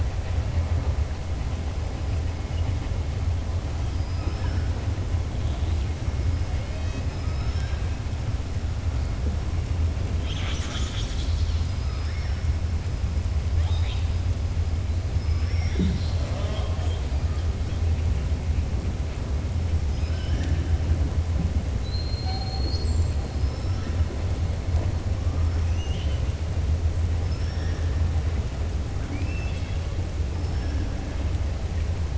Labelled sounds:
3.8	4.6	killer whale, southern resident, 4.2 to 5.9 kHz
7.1	7.7	killer whale, southern resident, 5.1 to 5.5 kHz
13.5	14.1	killer whale, southern resident, 0.87 to 4.9 kHz
19.8	20.7	killer whale, southern resident, 1.5 to 6.6 kHz
25.4	26.2	killer whale, southern resident, 2.1 to 6.4 kHz
29.0	29.8	killer whale, southern resident, 1.4 to 6.3 kHz

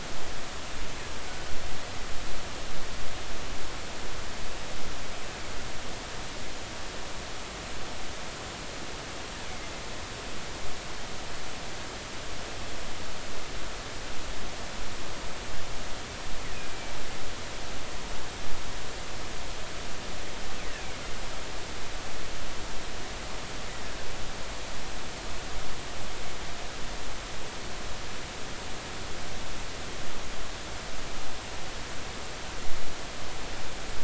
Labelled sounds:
20.7	21.0	killer whale, 2.1 to 2.9 kHz

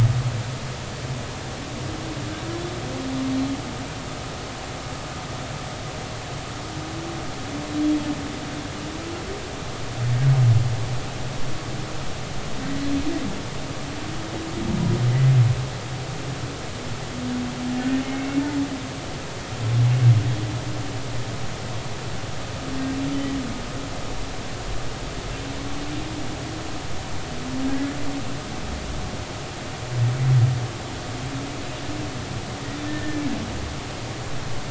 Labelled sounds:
18.0	18.4	humpback whale, 2.0 to 2.3 kHz
27.6	27.9	humpback whale, 1.6 to 1.7 kHz
32.9	33.2	humpback whale, 1.7 to 1.9 kHz

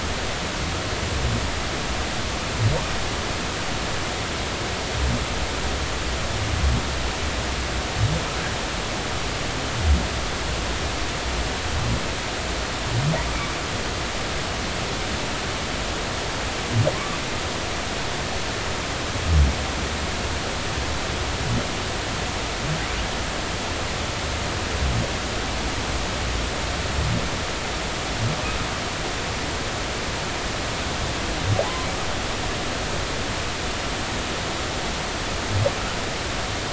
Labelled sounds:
16.9	17.2	humpback whale, 1.0 to 1.2 kHz

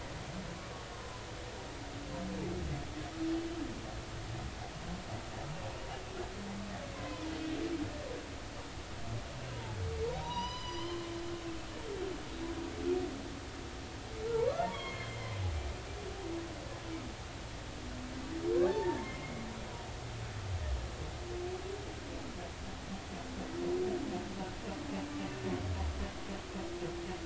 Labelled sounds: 7.0	7.3	humpback whale, 0.86 to 1.1 kHz
9.5	9.8	humpback whale, 0.80 to 1.0 kHz
10.2	11.1	humpback whale, 0.86 to 6.1 kHz
14.7	15.4	humpback whale, 1.0 to 4.4 kHz
18.7	19.5	humpback whale, 0.83 to 2.3 kHz

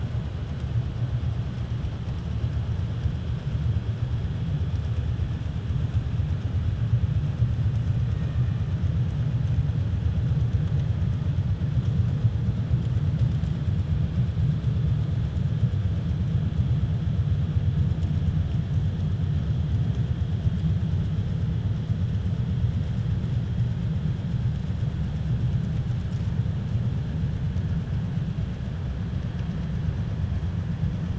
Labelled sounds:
8.1	8.6	killer whale, 1.2 to 2.7 kHz

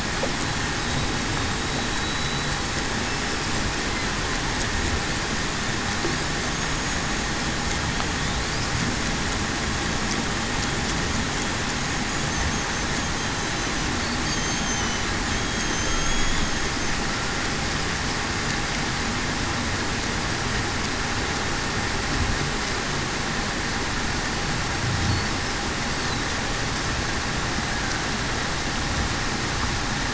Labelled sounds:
1.9	2.5	killer whale, Bigg's (transient), 3.9 to 4.0 kHz
14.3	14.7	killer whale, Bigg's (transient), 6.3 to 6.5 kHz
15.4	16.3	killer whale, Bigg's (transient), 3.2 to 3.4 kHz

